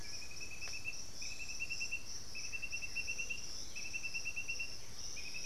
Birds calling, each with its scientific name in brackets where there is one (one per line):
White-winged Becard (Pachyramphus polychopterus)
unidentified bird
Blue-gray Saltator (Saltator coerulescens)